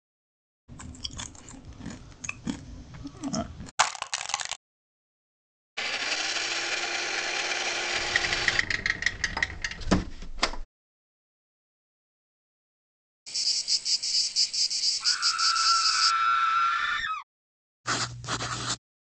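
At the start, chewing is heard. Then, about 4 seconds in, crushing can be heard. Afterwards, about 6 seconds in, an engine is audible. Over it, about 8 seconds in, comes the sound of a window closing. Later, about 13 seconds in, a cricket can be heard. Meanwhile, at about 15 seconds, someone screams. Finally, about 18 seconds in, writing is audible.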